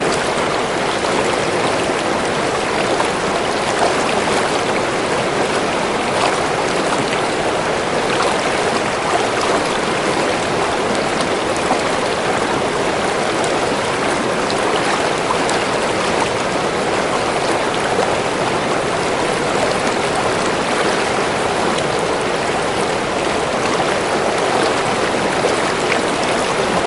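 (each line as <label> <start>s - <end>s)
Continuous, prolonged sounds of water cascading, splashing, and babbling. 0.0s - 26.9s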